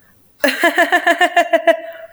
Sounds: Laughter